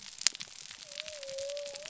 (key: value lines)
label: biophony
recorder: SoundTrap 300